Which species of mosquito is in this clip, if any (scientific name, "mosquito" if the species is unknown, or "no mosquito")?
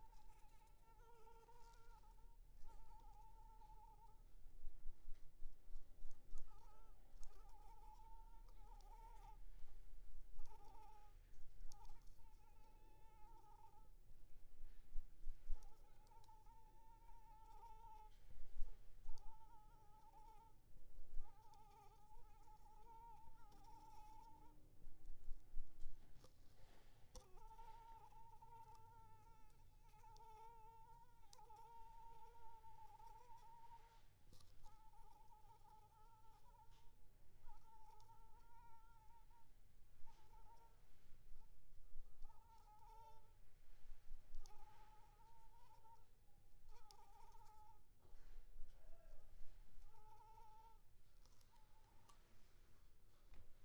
Anopheles arabiensis